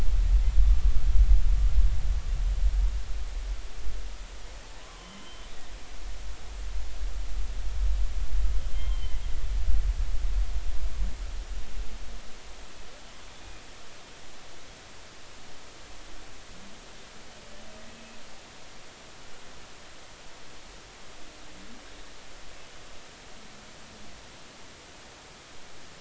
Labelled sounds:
4.8	5.5	humpback whale, 0.96 to 3.2 kHz
8.7	9.2	humpback whale, 2.0 to 3.2 kHz

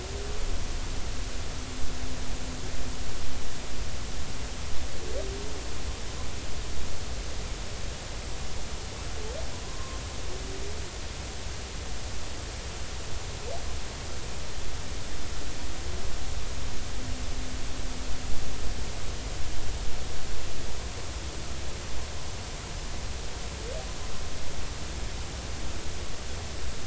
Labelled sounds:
9.6	10.0	humpback whale, 0.96 to 1.1 kHz

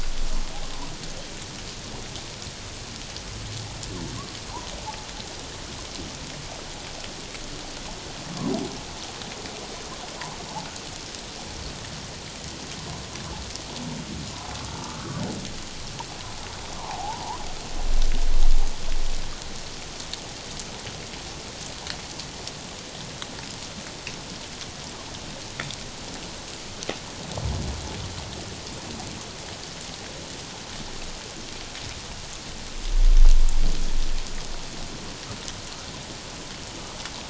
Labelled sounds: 16.8	17.4	humpback whale, 0.78 to 1.2 kHz

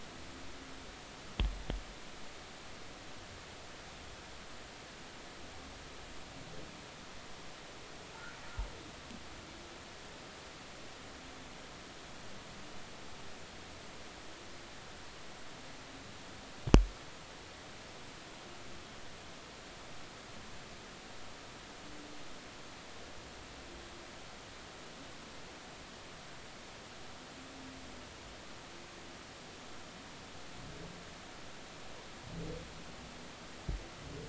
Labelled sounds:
8.1	8.4	humpback whale, 1.3 to 1.6 kHz

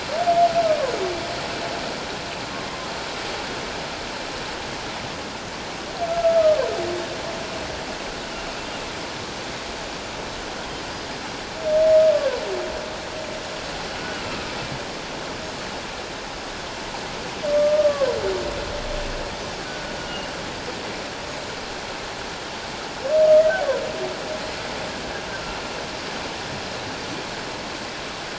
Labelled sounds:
0.6	0.9	humpback whale, 0.94 to 1.3 kHz
6.2	6.7	humpback whale, 0.94 to 1.4 kHz
14.0	14.5	humpback whale, 1.2 to 1.5 kHz
17.5	17.9	humpback whale, 1.16 to 1.25 kHz
20.0	20.3	humpback whale, 2.8 to 2.9 kHz

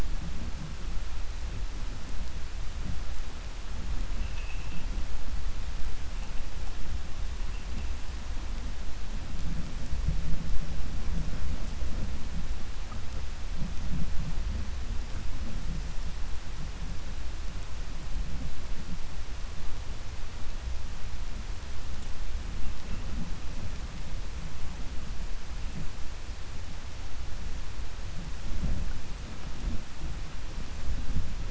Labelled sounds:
4.1	4.8	vessel noise, 1.8 to 3.6 kHz

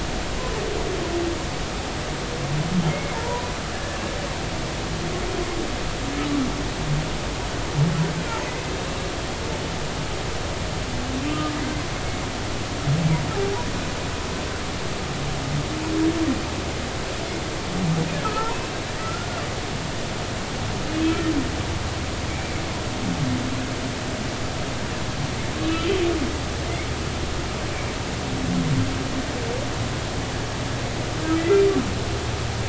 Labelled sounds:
2.9	3.5	humpback whale, 0.86 to 2.3 kHz
3.7	4.0	humpback whale, 1.6 to 1.8 kHz
11.3	11.5	humpback whale, 1.2 to 1.3 kHz
18.2	19.4	humpback whale, 1.2 to 1.5 kHz
25.6	26.0	humpback whale, 2.5 to 3.1 kHz

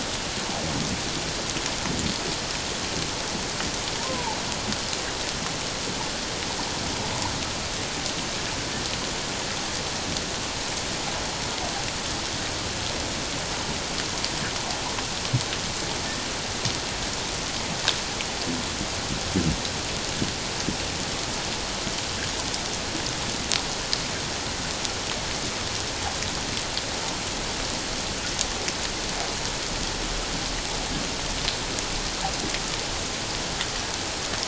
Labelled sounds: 4.0	4.4	humpback whale, 0.81 to 1.1 kHz

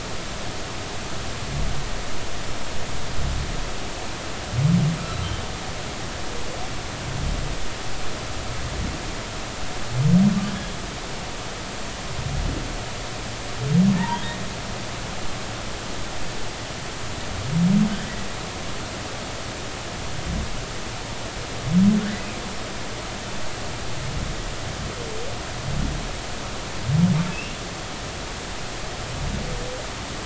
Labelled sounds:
14.0	14.2	humpback whale, 0.86 to 2.0 kHz
27.3	27.6	humpback whale, 2.5 to 2.8 kHz

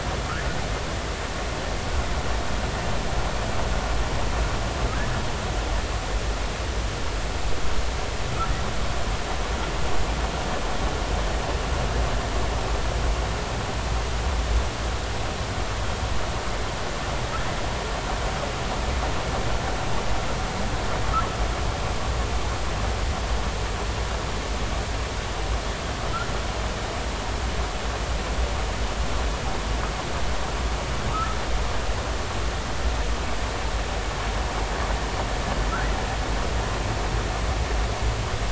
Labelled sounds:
31.1	31.4	humpback whale, 1.2 to 1.4 kHz

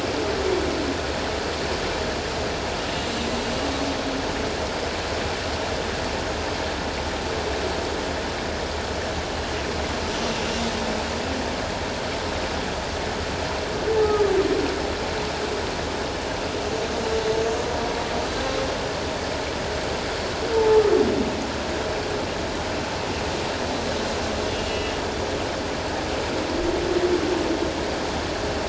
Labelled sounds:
20.5	20.8	humpback whale, 0.81 to 0.94 kHz
24.5	24.9	humpback whale, 2.8 to 2.9 kHz

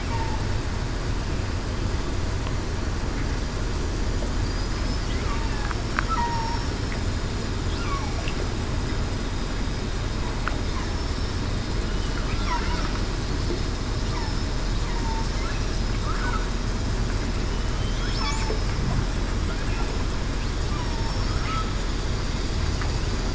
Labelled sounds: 4.4	5.0	killer whale, southern resident, 4.7 to 5.2 kHz
6.1	6.6	killer whale, southern resident, 0.87 to 1.0 kHz
20.8	21.3	killer whale, southern resident, 5.4 to 5.5 kHz

